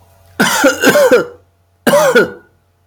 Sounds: Cough